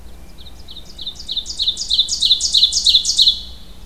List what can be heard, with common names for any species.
Ovenbird, Hermit Thrush